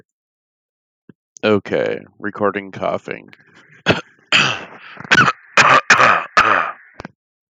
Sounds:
Cough